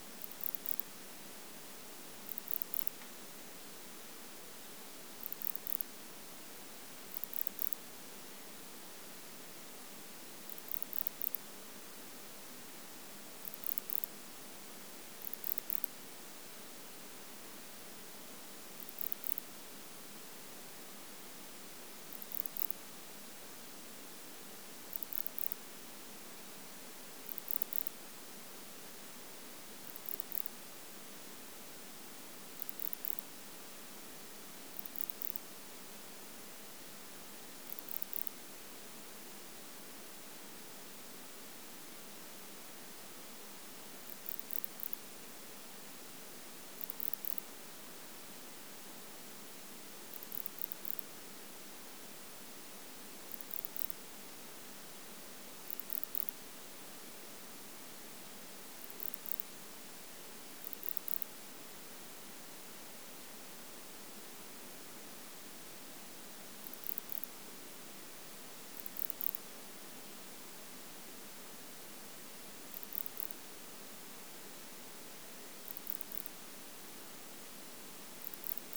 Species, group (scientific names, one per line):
Barbitistes yersini
Orthoptera